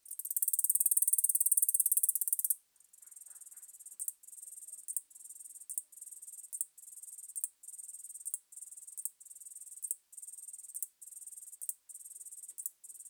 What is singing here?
Polysarcus denticauda, an orthopteran